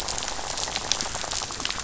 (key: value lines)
label: biophony, rattle
recorder: SoundTrap 500